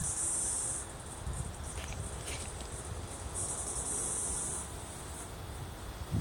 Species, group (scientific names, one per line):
Pauropsalta mneme
Cicadidae